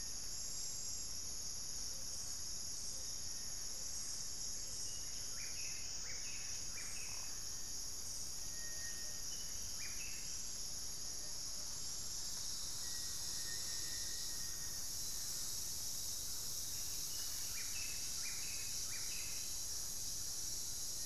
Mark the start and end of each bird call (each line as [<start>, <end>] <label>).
[1.69, 6.29] Blue Ground Dove (Claravis pretiosa)
[4.59, 10.69] Buff-breasted Wren (Cantorchilus leucotis)
[12.59, 14.99] Black-faced Antthrush (Formicarius analis)
[16.59, 19.89] Buff-breasted Wren (Cantorchilus leucotis)